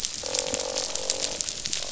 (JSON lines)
{"label": "biophony, croak", "recorder": "SoundTrap 500"}